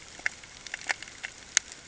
{"label": "ambient", "recorder": "HydroMoth"}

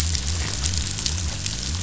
{"label": "biophony", "recorder": "SoundTrap 500"}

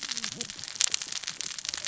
{"label": "biophony, cascading saw", "recorder": "SoundTrap 600 or HydroMoth"}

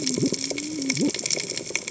{"label": "biophony, cascading saw", "recorder": "HydroMoth"}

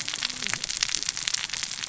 {"label": "biophony, cascading saw", "recorder": "SoundTrap 600 or HydroMoth"}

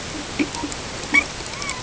{"label": "ambient", "recorder": "HydroMoth"}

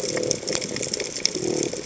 {"label": "biophony", "recorder": "HydroMoth"}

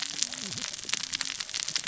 {"label": "biophony, cascading saw", "recorder": "SoundTrap 600 or HydroMoth"}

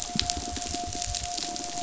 {"label": "biophony", "recorder": "SoundTrap 500"}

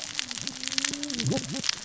{"label": "biophony, cascading saw", "recorder": "SoundTrap 600 or HydroMoth"}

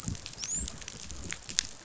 {"label": "biophony, dolphin", "recorder": "SoundTrap 500"}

